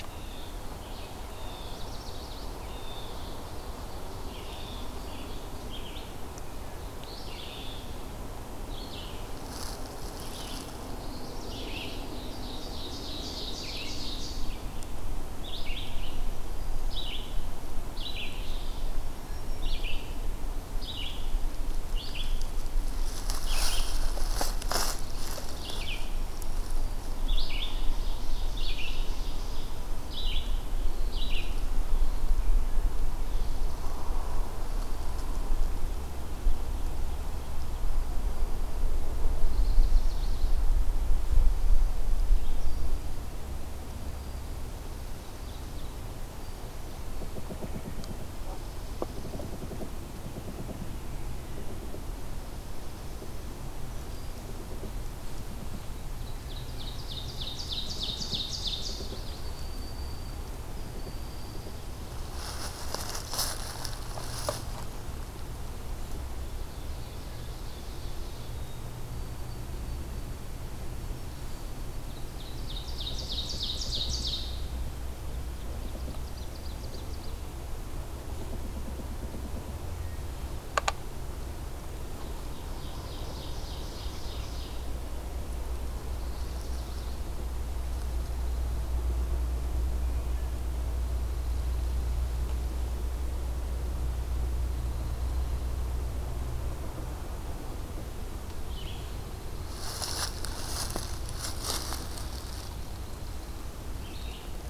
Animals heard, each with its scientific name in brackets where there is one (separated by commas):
Broad-winged Hawk (Buteo platypterus), Ovenbird (Seiurus aurocapilla), Chestnut-sided Warbler (Setophaga pensylvanica), Blue Jay (Cyanocitta cristata), White-throated Sparrow (Zonotrichia albicollis), Red-eyed Vireo (Vireo olivaceus), Black-throated Green Warbler (Setophaga virens), American Redstart (Setophaga ruticilla), Dark-eyed Junco (Junco hyemalis)